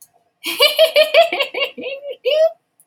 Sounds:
Laughter